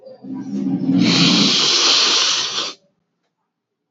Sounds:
Sniff